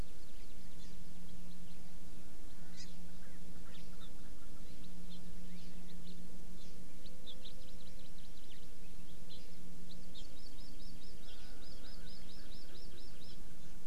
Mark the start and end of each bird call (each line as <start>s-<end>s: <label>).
0.0s-1.7s: Hawaii Amakihi (Chlorodrepanis virens)
2.6s-4.6s: Erckel's Francolin (Pternistis erckelii)
2.8s-2.9s: Hawaii Amakihi (Chlorodrepanis virens)
7.5s-8.7s: Hawaii Amakihi (Chlorodrepanis virens)
9.3s-9.4s: Hawaii Amakihi (Chlorodrepanis virens)
9.9s-13.4s: Hawaii Amakihi (Chlorodrepanis virens)
11.2s-13.8s: Erckel's Francolin (Pternistis erckelii)